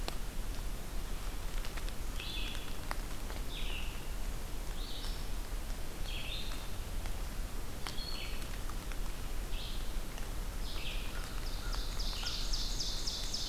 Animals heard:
Red-eyed Vireo (Vireo olivaceus), Ovenbird (Seiurus aurocapilla)

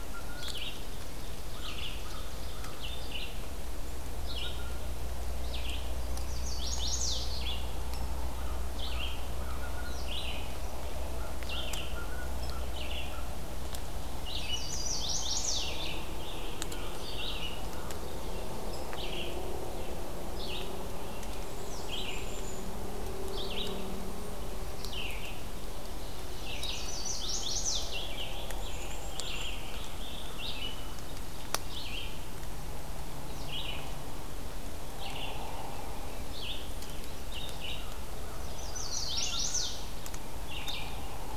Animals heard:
Rose-breasted Grosbeak (Pheucticus ludovicianus), American Crow (Corvus brachyrhynchos), Chestnut-sided Warbler (Setophaga pensylvanica), Red-eyed Vireo (Vireo olivaceus), Ovenbird (Seiurus aurocapilla), Black-capped Chickadee (Poecile atricapillus)

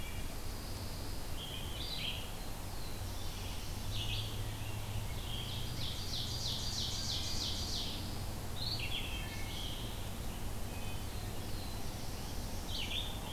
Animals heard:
Wood Thrush (Hylocichla mustelina), Pine Warbler (Setophaga pinus), Black-throated Blue Warbler (Setophaga caerulescens), Red-eyed Vireo (Vireo olivaceus), Ovenbird (Seiurus aurocapilla)

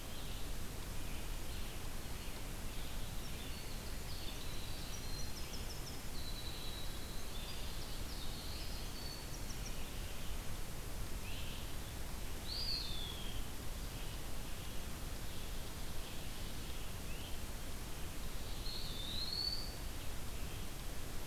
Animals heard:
Black-throated Blue Warbler (Setophaga caerulescens), Winter Wren (Troglodytes hiemalis), Red-eyed Vireo (Vireo olivaceus), Eastern Wood-Pewee (Contopus virens), Great Crested Flycatcher (Myiarchus crinitus)

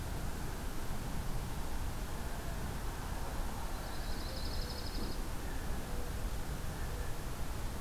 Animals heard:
Blue Jay (Cyanocitta cristata), Dark-eyed Junco (Junco hyemalis)

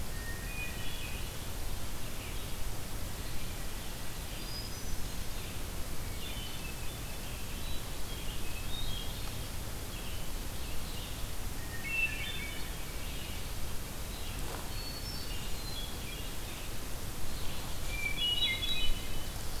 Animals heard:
Red-eyed Vireo (Vireo olivaceus), Hermit Thrush (Catharus guttatus)

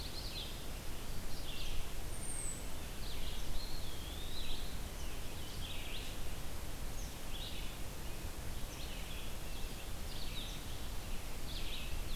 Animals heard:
Red-eyed Vireo (Vireo olivaceus), American Robin (Turdus migratorius), Eastern Wood-Pewee (Contopus virens)

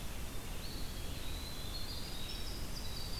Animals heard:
Winter Wren (Troglodytes hiemalis), Eastern Wood-Pewee (Contopus virens)

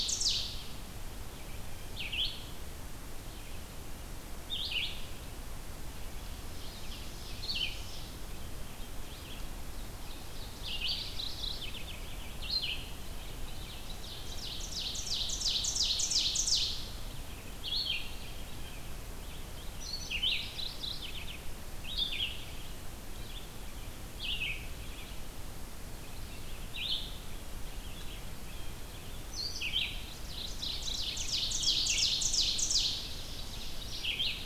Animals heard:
Red-eyed Vireo (Vireo olivaceus), Ovenbird (Seiurus aurocapilla), Mourning Warbler (Geothlypis philadelphia)

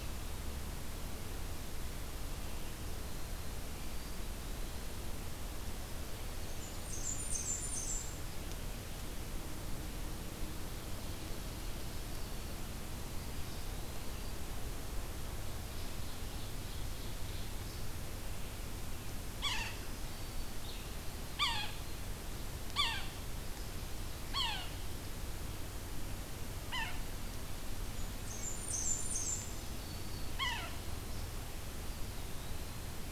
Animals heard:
Yellow-bellied Sapsucker (Sphyrapicus varius), Ovenbird (Seiurus aurocapilla), Black-throated Green Warbler (Setophaga virens), Blackburnian Warbler (Setophaga fusca), Eastern Wood-Pewee (Contopus virens)

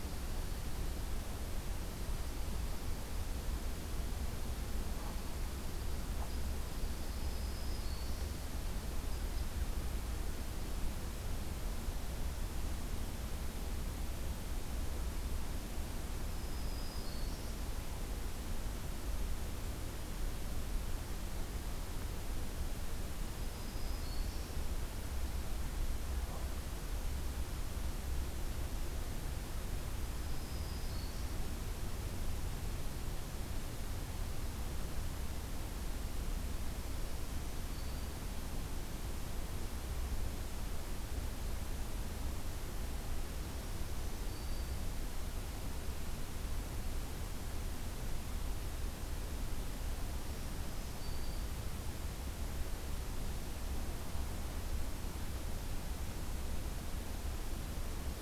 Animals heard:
Black-throated Green Warbler (Setophaga virens)

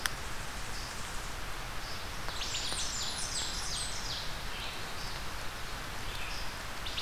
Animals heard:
Red-eyed Vireo (Vireo olivaceus), Wood Thrush (Hylocichla mustelina), Blackburnian Warbler (Setophaga fusca), Ovenbird (Seiurus aurocapilla)

